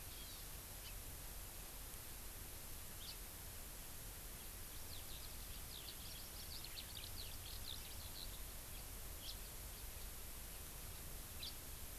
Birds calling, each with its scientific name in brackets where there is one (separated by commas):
Eurasian Skylark (Alauda arvensis), House Finch (Haemorhous mexicanus), Hawaii Amakihi (Chlorodrepanis virens)